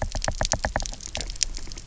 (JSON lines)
{"label": "biophony, knock", "recorder": "SoundTrap 300"}